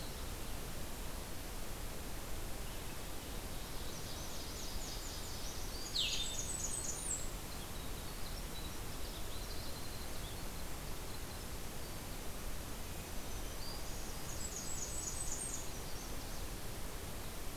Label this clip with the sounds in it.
Nashville Warbler, Blackburnian Warbler, Blue-headed Vireo, Winter Wren, Black-throated Green Warbler